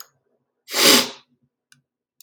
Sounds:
Sniff